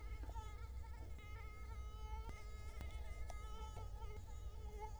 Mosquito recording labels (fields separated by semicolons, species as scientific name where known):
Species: Culex quinquefasciatus; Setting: cup